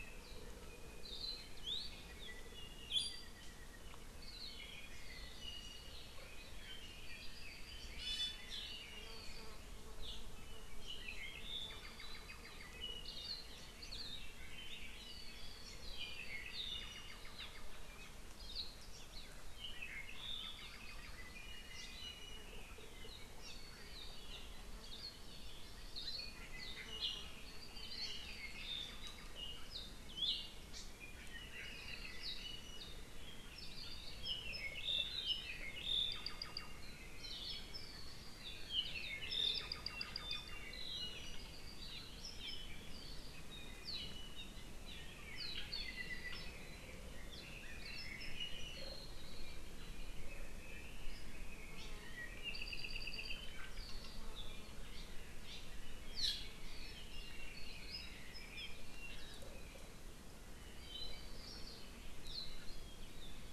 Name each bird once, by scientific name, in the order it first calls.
Loxops coccineus, Drepanis coccinea, Himatione sanguinea